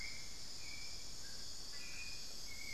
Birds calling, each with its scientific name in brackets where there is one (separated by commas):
Little Tinamou (Crypturellus soui), Hauxwell's Thrush (Turdus hauxwelli), unidentified bird